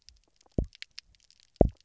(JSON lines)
{"label": "biophony, double pulse", "recorder": "SoundTrap 300"}